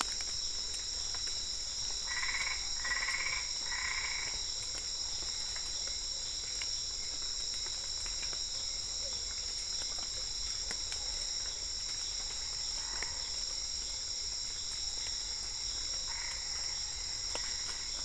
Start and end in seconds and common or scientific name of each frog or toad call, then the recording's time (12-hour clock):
0.0	16.7	Dendropsophus cruzi
1.9	4.6	Boana albopunctata
15.9	18.0	Boana albopunctata
7:00pm